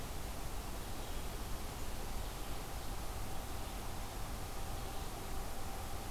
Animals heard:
forest ambience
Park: Marsh-Billings-Rockefeller National Historical Park